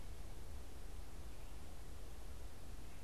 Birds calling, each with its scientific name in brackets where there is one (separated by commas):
White-breasted Nuthatch (Sitta carolinensis), Red-eyed Vireo (Vireo olivaceus)